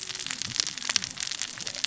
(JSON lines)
{"label": "biophony, cascading saw", "recorder": "SoundTrap 600 or HydroMoth"}